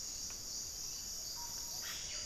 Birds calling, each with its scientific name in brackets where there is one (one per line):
Plumbeous Pigeon (Patagioenas plumbea)
Gray-fronted Dove (Leptotila rufaxilla)
Russet-backed Oropendola (Psarocolius angustifrons)
Yellow-rumped Cacique (Cacicus cela)